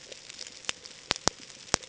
{"label": "ambient", "recorder": "HydroMoth"}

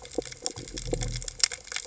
{"label": "biophony", "recorder": "HydroMoth"}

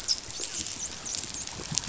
{"label": "biophony, dolphin", "recorder": "SoundTrap 500"}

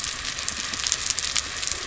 {"label": "anthrophony, boat engine", "recorder": "SoundTrap 300"}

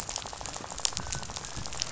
{"label": "biophony, rattle", "recorder": "SoundTrap 500"}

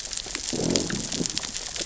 {"label": "biophony, growl", "recorder": "SoundTrap 600 or HydroMoth"}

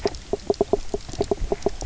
{"label": "biophony, knock croak", "recorder": "SoundTrap 300"}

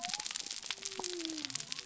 {"label": "biophony", "recorder": "SoundTrap 300"}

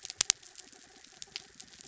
{"label": "anthrophony, mechanical", "recorder": "SoundTrap 300"}
{"label": "biophony", "recorder": "SoundTrap 300"}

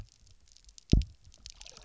{"label": "biophony, double pulse", "recorder": "SoundTrap 300"}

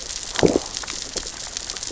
{"label": "biophony, growl", "recorder": "SoundTrap 600 or HydroMoth"}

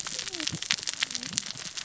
{"label": "biophony, cascading saw", "recorder": "SoundTrap 600 or HydroMoth"}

